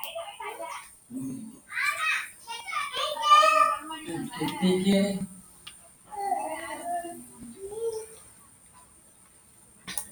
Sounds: Sneeze